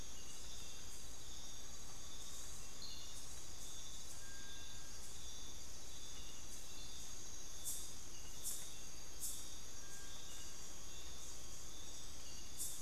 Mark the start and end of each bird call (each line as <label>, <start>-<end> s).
Bartlett's Tinamou (Crypturellus bartletti), 0.0-12.8 s
Amazonian Pygmy-Owl (Glaucidium hardyi), 1.3-3.7 s
Amazonian Pygmy-Owl (Glaucidium hardyi), 9.4-12.2 s